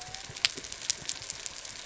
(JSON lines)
{"label": "biophony", "recorder": "SoundTrap 300"}